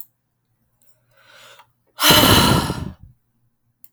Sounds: Sigh